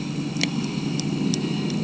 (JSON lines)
{"label": "anthrophony, boat engine", "recorder": "HydroMoth"}